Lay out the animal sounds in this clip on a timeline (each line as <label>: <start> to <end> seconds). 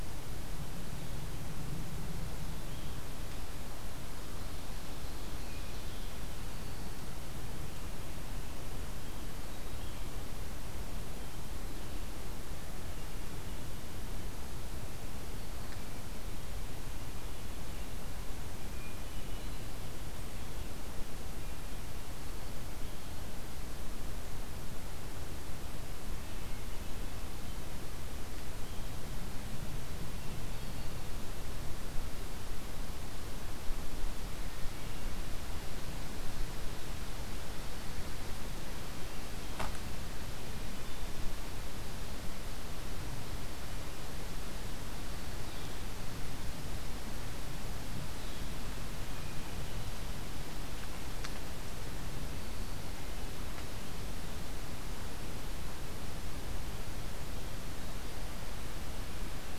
Ovenbird (Seiurus aurocapilla): 4.1 to 6.2 seconds
Hermit Thrush (Catharus guttatus): 8.8 to 10.3 seconds
Hermit Thrush (Catharus guttatus): 18.5 to 19.8 seconds
Hermit Thrush (Catharus guttatus): 30.2 to 31.5 seconds
Hermit Thrush (Catharus guttatus): 40.3 to 41.2 seconds
Red-eyed Vireo (Vireo olivaceus): 45.3 to 48.6 seconds